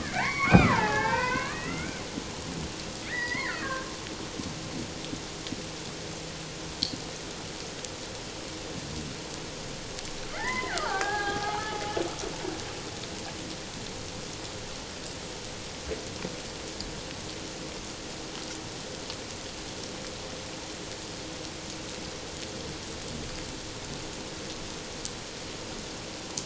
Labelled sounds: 0.0	2.0	killer whale, Bigg's (transient), call T04, 0.78 to 4.8 kHz
3.1	3.9	killer whale, Bigg's (transient), 0.94 to 2.2 kHz
10.4	11.6	killer whale, Bigg's (transient), 0.78 to 2.1 kHz

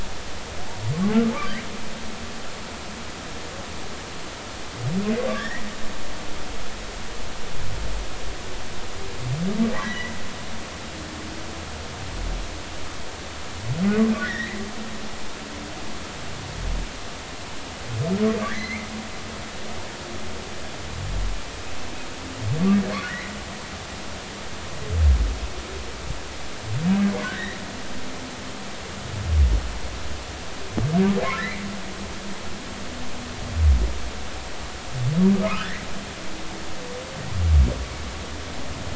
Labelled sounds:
5.3	5.6	humpback whale, 1.5 to 2.1 kHz
9.7	10.1	humpback whale, 1.8 to 2.1 kHz
14.2	14.6	humpback whale, 1.6 to 2.0 kHz
18.4	18.9	humpback whale, 1.5 to 4.2 kHz
23.1	23.4	humpback whale, 1.7 to 2.2 kHz
27.3	27.6	humpback whale, 1.7 to 2.0 kHz
31.4	31.6	humpback whale, 1.6 to 2.4 kHz
35.3	35.8	humpback whale, 0.99 to 2.1 kHz

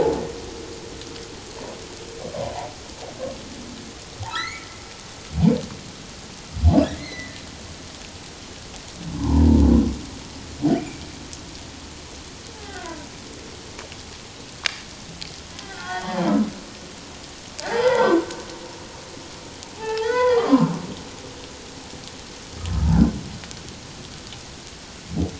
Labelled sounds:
4.3	4.8	humpback whale, 1.2 to 4.4 kHz
6.8	7.4	humpback whale, 1.6 to 4.4 kHz
9.2	9.5	humpback whale, 0.81 to 1.2 kHz
12.5	13.1	humpback whale, 0.78 to 1.7 kHz
15.6	16.3	humpback whale, 0.84 to 3.4 kHz
17.6	18.2	humpback whale, 0.78 to 2.1 kHz
19.8	20.7	humpback whale, 0.81 to 3.5 kHz

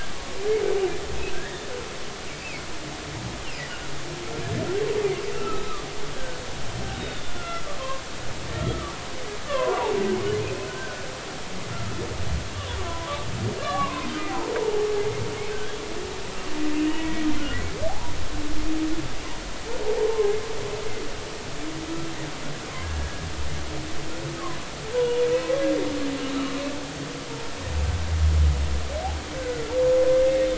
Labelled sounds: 0.6	1.6	humpback whale, 1.5 to 3.0 kHz
5.3	6.4	humpback whale, 1.1 to 2.8 kHz
7.0	7.7	humpback whale, 1.3 to 3.8 kHz
8.6	9.9	humpback whale, 0.80 to 1.4 kHz
10.6	11.1	humpback whale, 1.4 to 1.6 kHz
12.9	13.1	humpback whale, 0.96 to 1.1 kHz
13.6	14.9	humpback whale, 0.80 to 1.2 kHz
15.5	15.8	humpback whale, 1.5 to 1.7 kHz
16.9	17.3	humpback whale, 0.86 to 2.4 kHz
17.9	18.1	humpback whale, 0.80 to 1.0 kHz
22.8	23.2	humpback whale, 1.6 to 1.7 kHz
29.4	29.7	humpback whale, 1.3 to 1.6 kHz

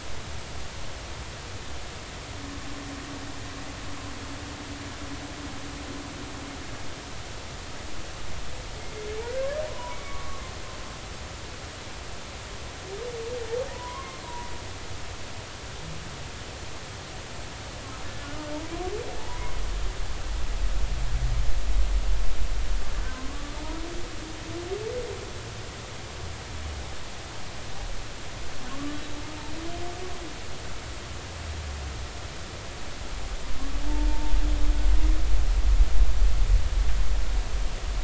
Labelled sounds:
9.7	10.5	humpback whale, 0.93 to 2.3 kHz
13.7	14.5	humpback whale, 0.90 to 1.2 kHz
19.2	19.5	humpback whale, 0.83 to 1.1 kHz
23.0	23.6	humpback whale, 0.99 to 1.2 kHz
33.8	34.3	humpback whale, 0.86 to 0.96 kHz

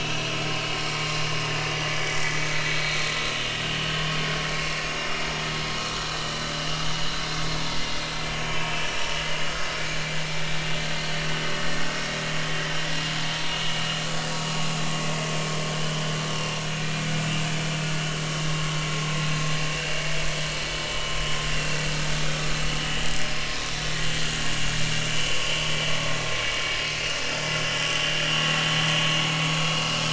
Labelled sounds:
2.0	2.6	vessel noise, 1.9 to 6.1 kHz
3.7	4.0	vessel noise, 2.9 to 3.1 kHz
4.8	5.1	vessel noise, 6.4 to 6.7 kHz
8.4	8.6	vessel noise, 6.5 to 6.6 kHz
13.5	13.9	vessel noise, 2.8 to 3.0 kHz
21.5	21.8	vessel noise, 2.7 to 2.8 kHz
25.0	25.4	vessel noise, 2.8 to 3.0 kHz
26.3	26.6	vessel noise, 2.2 to 2.3 kHz
28.3	28.5	vessel noise, 2.7 to 3.0 kHz

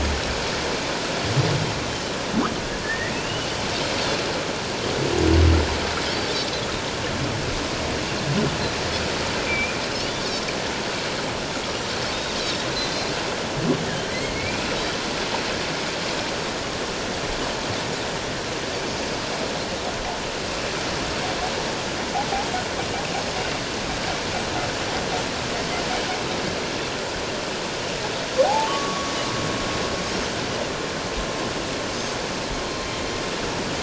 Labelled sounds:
2.8	3.5	humpback whale, 1.7 to 3.0 kHz
9.5	9.8	humpback whale, 2.2 to 2.5 kHz
12.7	13.1	Pacific white-sided dolphin, 3.9 to 6.1 kHz
14.3	14.7	humpback whale, 2.1 to 2.6 kHz
28.4	29.1	humpback whale, 0.78 to 1.3 kHz

